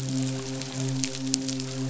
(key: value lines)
label: biophony, midshipman
recorder: SoundTrap 500